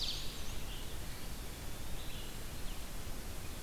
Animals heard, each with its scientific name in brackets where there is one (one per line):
Eastern Wood-Pewee (Contopus virens)
Red-eyed Vireo (Vireo olivaceus)
Black-and-white Warbler (Mniotilta varia)